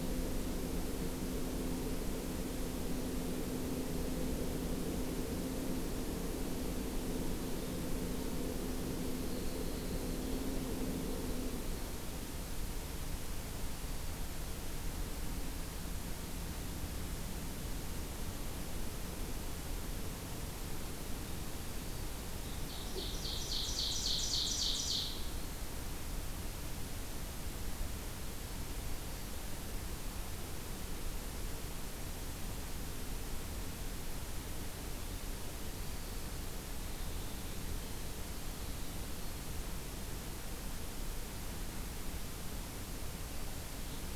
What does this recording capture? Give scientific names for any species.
Troglodytes hiemalis, Seiurus aurocapilla